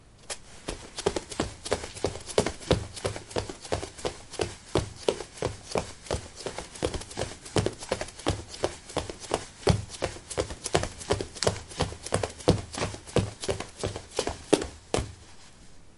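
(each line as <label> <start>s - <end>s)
Light running footsteps with gentle, rhythmic taps. 0.0s - 15.2s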